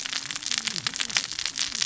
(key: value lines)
label: biophony, cascading saw
recorder: SoundTrap 600 or HydroMoth